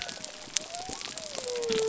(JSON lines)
{"label": "biophony", "recorder": "SoundTrap 300"}